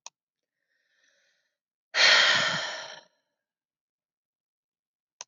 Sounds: Sigh